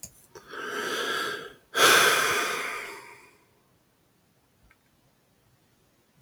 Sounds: Sigh